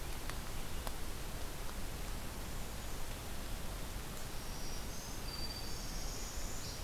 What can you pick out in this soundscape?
Black-throated Green Warbler, Northern Parula